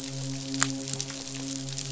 {"label": "biophony, midshipman", "recorder": "SoundTrap 500"}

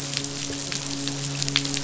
{"label": "biophony, midshipman", "recorder": "SoundTrap 500"}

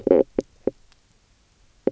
{"label": "biophony, knock croak", "recorder": "SoundTrap 300"}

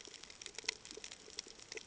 {"label": "ambient", "recorder": "HydroMoth"}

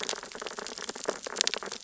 {"label": "biophony, sea urchins (Echinidae)", "recorder": "SoundTrap 600 or HydroMoth"}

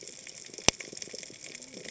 {"label": "biophony, cascading saw", "recorder": "HydroMoth"}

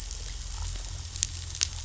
{"label": "anthrophony, boat engine", "recorder": "SoundTrap 500"}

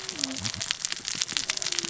{"label": "biophony, cascading saw", "recorder": "SoundTrap 600 or HydroMoth"}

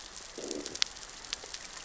{"label": "biophony, growl", "recorder": "SoundTrap 600 or HydroMoth"}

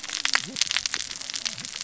{"label": "biophony, cascading saw", "recorder": "SoundTrap 600 or HydroMoth"}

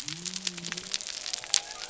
{"label": "biophony", "recorder": "SoundTrap 300"}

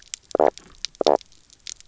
{"label": "biophony, knock croak", "recorder": "SoundTrap 300"}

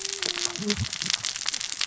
{"label": "biophony, cascading saw", "recorder": "SoundTrap 600 or HydroMoth"}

